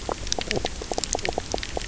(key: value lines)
label: biophony, knock croak
recorder: SoundTrap 300